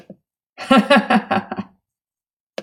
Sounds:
Laughter